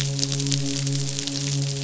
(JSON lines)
{"label": "biophony, midshipman", "recorder": "SoundTrap 500"}